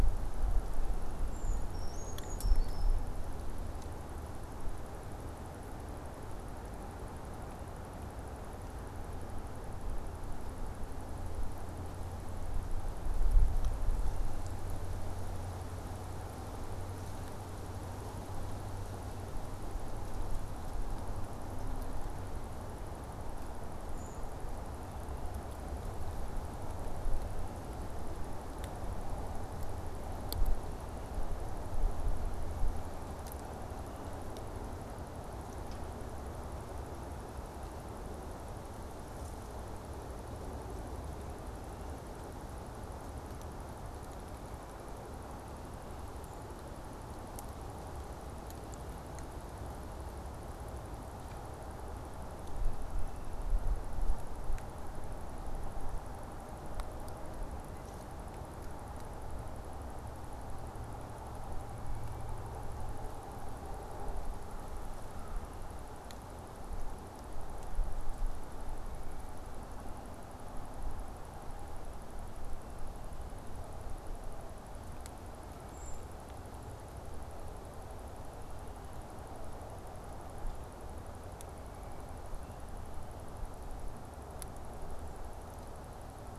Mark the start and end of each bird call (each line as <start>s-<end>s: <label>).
1.2s-3.1s: Brown Creeper (Certhia americana)
24.0s-24.3s: Brown Creeper (Certhia americana)
75.6s-76.2s: Brown Creeper (Certhia americana)